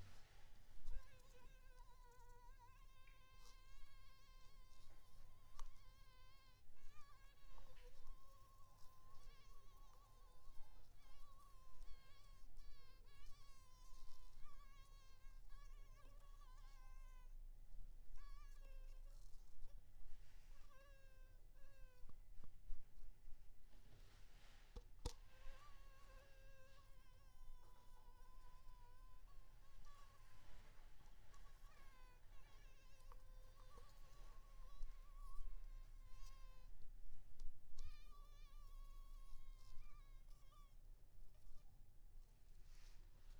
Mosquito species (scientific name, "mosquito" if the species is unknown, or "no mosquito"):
Anopheles maculipalpis